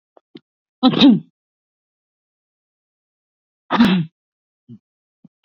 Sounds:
Sneeze